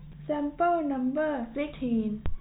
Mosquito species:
no mosquito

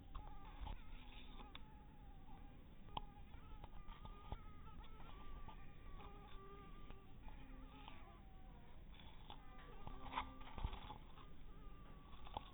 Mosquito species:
mosquito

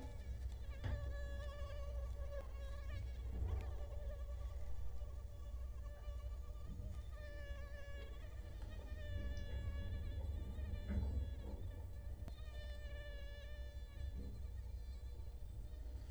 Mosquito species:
Culex quinquefasciatus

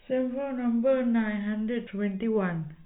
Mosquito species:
no mosquito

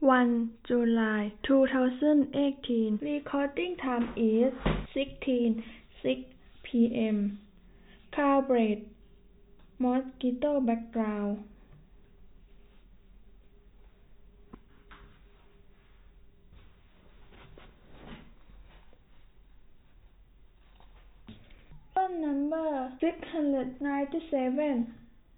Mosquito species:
no mosquito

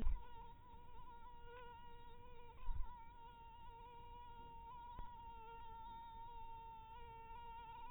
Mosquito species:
mosquito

